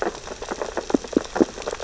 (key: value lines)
label: biophony, sea urchins (Echinidae)
recorder: SoundTrap 600 or HydroMoth